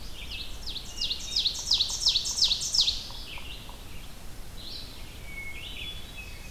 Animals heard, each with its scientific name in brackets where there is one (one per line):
Red-eyed Vireo (Vireo olivaceus)
Yellow-bellied Sapsucker (Sphyrapicus varius)
Ovenbird (Seiurus aurocapilla)
Hermit Thrush (Catharus guttatus)